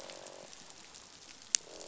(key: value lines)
label: biophony, croak
recorder: SoundTrap 500